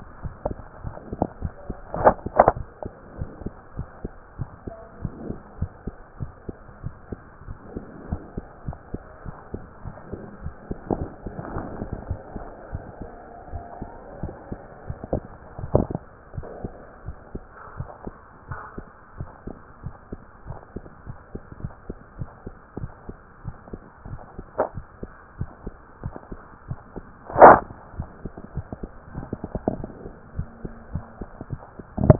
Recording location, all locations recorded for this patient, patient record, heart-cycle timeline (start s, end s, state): mitral valve (MV)
aortic valve (AV)+pulmonary valve (PV)+tricuspid valve (TV)+mitral valve (MV)
#Age: Child
#Sex: Female
#Height: 125.0 cm
#Weight: 23.0 kg
#Pregnancy status: False
#Murmur: Absent
#Murmur locations: nan
#Most audible location: nan
#Systolic murmur timing: nan
#Systolic murmur shape: nan
#Systolic murmur grading: nan
#Systolic murmur pitch: nan
#Systolic murmur quality: nan
#Diastolic murmur timing: nan
#Diastolic murmur shape: nan
#Diastolic murmur grading: nan
#Diastolic murmur pitch: nan
#Diastolic murmur quality: nan
#Outcome: Abnormal
#Campaign: 2015 screening campaign
0.00	3.16	unannotated
3.16	3.28	S1
3.28	3.40	systole
3.40	3.54	S2
3.54	3.76	diastole
3.76	3.88	S1
3.88	4.02	systole
4.02	4.14	S2
4.14	4.38	diastole
4.38	4.50	S1
4.50	4.66	systole
4.66	4.76	S2
4.76	5.00	diastole
5.00	5.12	S1
5.12	5.26	systole
5.26	5.38	S2
5.38	5.60	diastole
5.60	5.70	S1
5.70	5.86	systole
5.86	5.96	S2
5.96	6.20	diastole
6.20	6.32	S1
6.32	6.46	systole
6.46	6.56	S2
6.56	6.80	diastole
6.80	6.94	S1
6.94	7.10	systole
7.10	7.20	S2
7.20	7.46	diastole
7.46	7.58	S1
7.58	7.74	systole
7.74	7.84	S2
7.84	8.06	diastole
8.06	8.20	S1
8.20	8.36	systole
8.36	8.46	S2
8.46	8.66	diastole
8.66	8.78	S1
8.78	8.92	systole
8.92	9.02	S2
9.02	9.24	diastole
9.24	9.36	S1
9.36	9.52	systole
9.52	9.62	S2
9.62	9.84	diastole
9.84	9.96	S1
9.96	10.08	systole
10.08	10.20	S2
10.20	10.42	diastole
10.42	10.54	S1
10.54	10.66	systole
10.66	10.78	S2
10.78	10.96	diastole
10.96	11.10	S1
11.10	11.22	systole
11.22	11.34	S2
11.34	11.52	diastole
11.52	11.66	S1
11.66	11.78	systole
11.78	11.90	S2
11.90	12.08	diastole
12.08	12.20	S1
12.20	12.34	systole
12.34	12.46	S2
12.46	12.70	diastole
12.70	12.84	S1
12.84	13.00	systole
13.00	13.16	S2
13.16	13.46	diastole
13.46	13.64	S1
13.64	13.80	systole
13.80	13.92	S2
13.92	14.20	diastole
14.20	14.34	S1
14.34	14.50	systole
14.50	14.60	S2
14.60	14.86	diastole
14.86	15.00	S1
15.00	32.19	unannotated